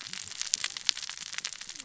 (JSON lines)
{"label": "biophony, cascading saw", "recorder": "SoundTrap 600 or HydroMoth"}